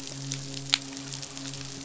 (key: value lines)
label: biophony, midshipman
recorder: SoundTrap 500